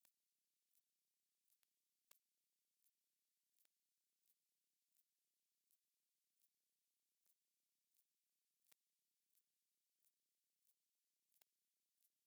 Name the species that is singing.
Ctenodecticus major